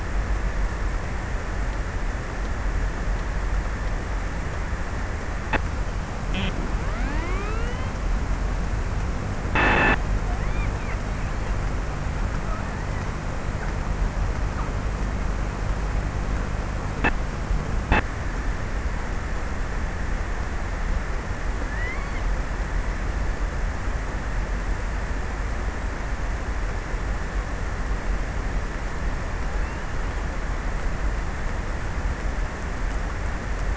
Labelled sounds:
21.0	22.8	killer whale, offshore, 0.45 to 2.9 kHz

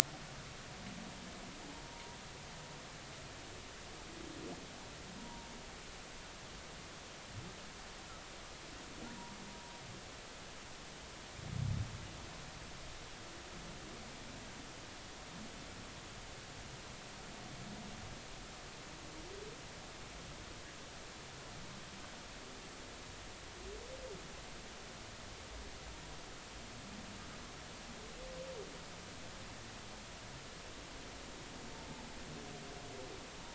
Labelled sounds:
1.9	2.2	humpback whale, 0.90 to 0.99 kHz
5.2	5.5	humpback whale, 0.86 to 0.99 kHz
9.0	9.4	humpback whale, 0.83 to 1.0 kHz

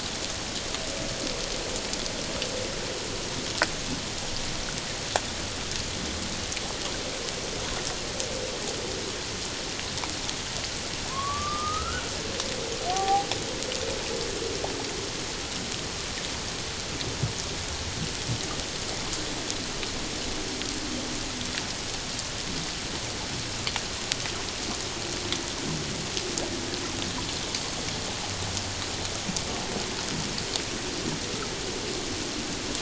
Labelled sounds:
11.1	12.0	humpback whale, 0.97 to 1.6 kHz
12.9	13.3	humpback whale, 0.78 to 1.2 kHz

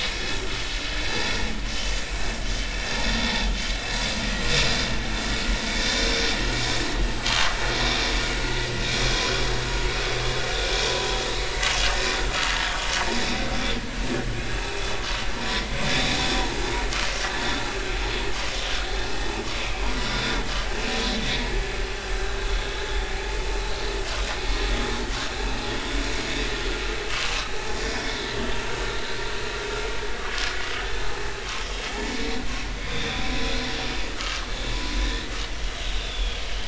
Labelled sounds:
1.0	1.3	vessel noise, 4.7 to 4.9 kHz
2.8	3.1	vessel noise, 5.3 to 5.5 kHz
5.9	6.2	vessel noise, 5.3 to 5.6 kHz
7.3	7.6	vessel noise, 0.99 to 1.3 kHz
8.8	9.2	vessel noise, 6.9 to 7.1 kHz
10.8	11.2	vessel noise, 0.93 to 1.1 kHz
13.2	13.4	vessel noise, 3.5 to 3.7 kHz
15.9	16.6	vessel noise, 0.80 to 3.9 kHz
21.2	21.5	vessel noise, 1.9 to 2.3 kHz
27.1	27.3	vessel noise, 1.0 to 1.3 kHz
32.9	33.2	vessel noise, 2.3 to 3.8 kHz
34.2	34.5	vessel noise, 1.1 to 1.4 kHz
36.0	36.4	vessel noise, 3.2 to 3.6 kHz

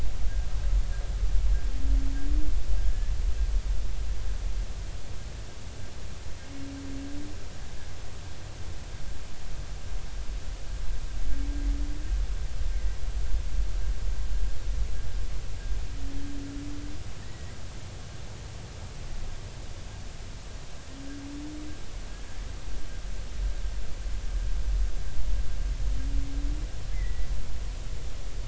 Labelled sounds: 2.9	3.1	humpback whale, 1.6 to 1.8 kHz
17.2	17.6	humpback whale, 1.8 to 2.0 kHz
26.9	27.3	humpback whale, 1.9 to 2.1 kHz

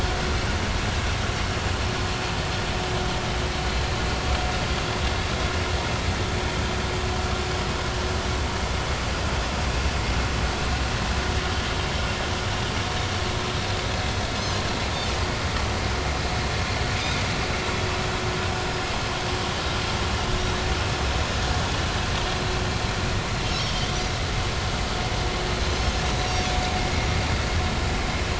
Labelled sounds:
4.7	5.0	Pacific white-sided dolphin, 3.3 to 3.4 kHz
20.3	20.6	Pacific white-sided dolphin, 3.6 to 3.9 kHz
23.5	23.9	Pacific white-sided dolphin, 3.0 to 5.6 kHz
26.1	26.3	Pacific white-sided dolphin, 3.8 to 4.0 kHz

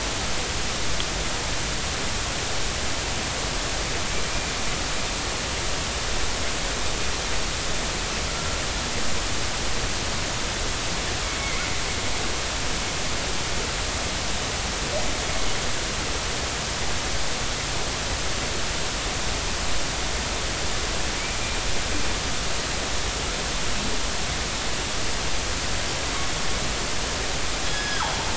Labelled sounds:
27.7	28.0	killer whale, northern resident, 1.5 to 5.2 kHz

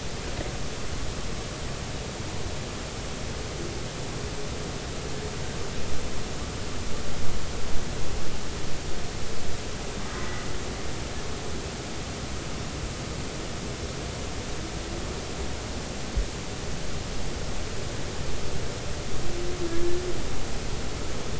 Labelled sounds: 10.2	10.5	humpback whale, 1.9 to 2.1 kHz

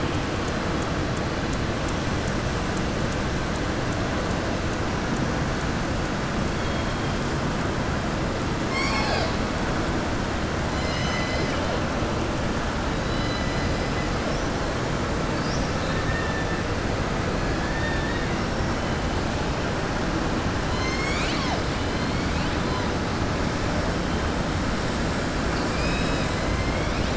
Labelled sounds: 26.5	27.1	killer whale, southern resident, 2.1 to 3.7 kHz

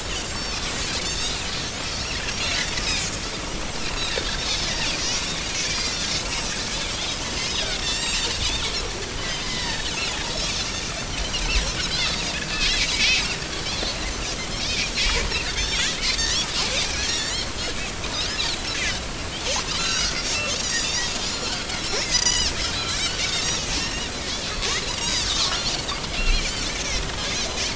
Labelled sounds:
0.2	0.6	Pacific white-sided dolphin, 5.2 to 5.7 kHz
1.2	1.4	Pacific white-sided dolphin, 5.1 to 5.2 kHz
1.9	2.7	Pacific white-sided dolphin, 3.9 to 5.8 kHz
3.8	4.7	Pacific white-sided dolphin, 2.6 to 5.4 kHz
5.5	10.1	Pacific white-sided dolphin, 0.86 to 7.9 kHz
11.0	12.1	Pacific white-sided dolphin, 1.4 to 6.0 kHz
12.9	13.2	Pacific white-sided dolphin, 2.0 to 2.7 kHz
14.5	16.3	Pacific white-sided dolphin, 1.9 to 5.8 kHz
17.1	17.5	Pacific white-sided dolphin, 1.7 to 7.4 kHz
19.8	24.1	Pacific white-sided dolphin, 1.3 to 7.1 kHz
24.8	26.5	Pacific white-sided dolphin, 0.99 to 7.9 kHz
26.7	27.0	Pacific white-sided dolphin, 6.2 to 6.4 kHz

